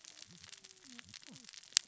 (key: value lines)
label: biophony, cascading saw
recorder: SoundTrap 600 or HydroMoth